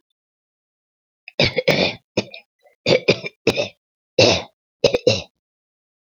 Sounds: Throat clearing